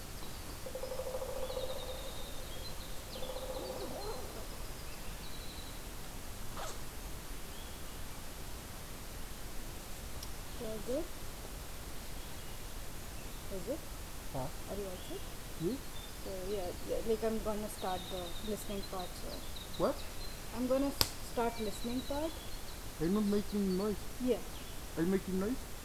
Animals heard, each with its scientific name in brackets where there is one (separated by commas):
Winter Wren (Troglodytes hiemalis), Pileated Woodpecker (Dryocopus pileatus)